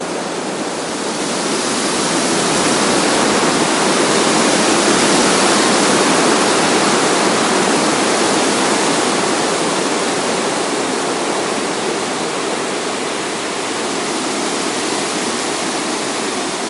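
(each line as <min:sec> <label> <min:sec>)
0:00.0 Wind blows loudly and continuously through the trees. 0:16.7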